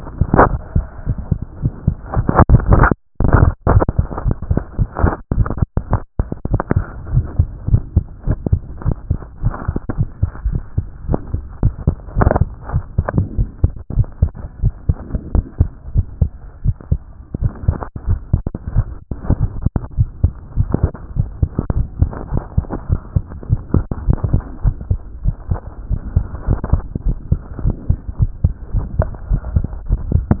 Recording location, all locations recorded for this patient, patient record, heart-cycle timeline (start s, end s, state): tricuspid valve (TV)
aortic valve (AV)+pulmonary valve (PV)+tricuspid valve (TV)+mitral valve (MV)
#Age: Child
#Sex: Male
#Height: 102.0 cm
#Weight: 17.5 kg
#Pregnancy status: False
#Murmur: Absent
#Murmur locations: nan
#Most audible location: nan
#Systolic murmur timing: nan
#Systolic murmur shape: nan
#Systolic murmur grading: nan
#Systolic murmur pitch: nan
#Systolic murmur quality: nan
#Diastolic murmur timing: nan
#Diastolic murmur shape: nan
#Diastolic murmur grading: nan
#Diastolic murmur pitch: nan
#Diastolic murmur quality: nan
#Outcome: Normal
#Campaign: 2014 screening campaign
0.00	13.34	unannotated
13.34	13.48	S1
13.48	13.60	systole
13.60	13.74	S2
13.74	13.96	diastole
13.96	14.08	S1
14.08	14.20	systole
14.20	14.34	S2
14.34	14.60	diastole
14.60	14.74	S1
14.74	14.86	systole
14.86	15.00	S2
15.00	15.28	diastole
15.28	15.46	S1
15.46	15.56	systole
15.56	15.72	S2
15.72	15.92	diastole
15.92	16.06	S1
16.06	16.18	systole
16.18	16.32	S2
16.32	16.62	diastole
16.62	16.76	S1
16.76	16.90	systole
16.90	17.04	S2
17.04	17.34	diastole
17.34	17.52	S1
17.52	17.66	systole
17.66	17.80	S2
17.80	18.06	diastole
18.06	18.20	S1
18.20	18.30	systole
18.30	18.44	S2
18.44	18.72	diastole
18.72	18.86	S1
18.86	18.94	systole
18.94	19.02	S2
19.02	19.26	diastole
19.26	19.44	S1
19.44	19.60	systole
19.60	19.72	S2
19.72	19.96	diastole
19.96	20.10	S1
20.10	20.22	systole
20.22	20.36	S2
20.36	20.58	diastole
20.58	20.72	S1
20.72	20.82	systole
20.82	20.94	S2
20.94	21.18	diastole
21.18	21.30	S1
21.30	21.40	systole
21.40	21.50	S2
21.50	21.74	diastole
21.74	21.88	S1
21.88	22.00	systole
22.00	22.10	S2
22.10	22.32	diastole
22.32	22.44	S1
22.44	22.56	systole
22.56	22.66	S2
22.66	22.90	diastole
22.90	23.00	S1
23.00	23.12	systole
23.12	23.24	S2
23.24	23.50	diastole
23.50	23.62	S1
23.62	23.70	systole
23.70	23.84	S2
23.84	24.06	diastole
24.06	24.20	S1
24.20	24.32	systole
24.32	24.42	S2
24.42	24.62	diastole
24.62	24.74	S1
24.74	24.88	systole
24.88	25.02	S2
25.02	25.24	diastole
25.24	25.36	S1
25.36	25.50	systole
25.50	25.62	S2
25.62	25.88	diastole
25.88	26.00	S1
26.00	26.14	systole
26.14	26.28	S2
26.28	26.46	diastole
26.46	26.60	S1
26.60	26.70	systole
26.70	26.84	S2
26.84	27.04	diastole
27.04	27.18	S1
27.18	27.30	systole
27.30	27.40	S2
27.40	27.62	diastole
27.62	27.74	S1
27.74	27.88	systole
27.88	27.98	S2
27.98	28.20	diastole
28.20	28.32	S1
28.32	28.42	systole
28.42	28.54	S2
28.54	28.72	diastole
28.72	28.86	S1
28.86	28.96	systole
28.96	29.08	S2
29.08	29.28	diastole
29.28	29.42	S1
29.42	29.54	systole
29.54	29.66	S2
29.66	29.88	diastole
29.88	30.00	S1
30.00	30.10	systole
30.10	30.26	S2
30.26	30.40	diastole